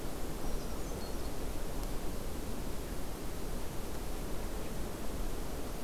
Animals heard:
Brown Creeper (Certhia americana)

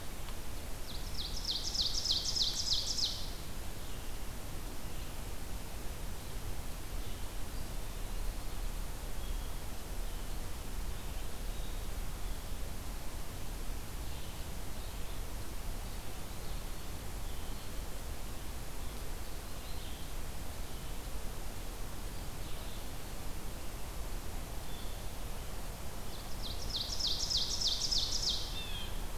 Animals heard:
Red-eyed Vireo (Vireo olivaceus)
Eastern Wood-Pewee (Contopus virens)
Blue Jay (Cyanocitta cristata)
Ovenbird (Seiurus aurocapilla)

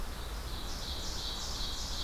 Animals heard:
Ovenbird (Seiurus aurocapilla)

